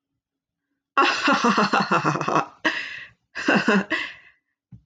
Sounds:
Laughter